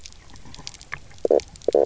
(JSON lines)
{"label": "biophony, knock croak", "recorder": "SoundTrap 300"}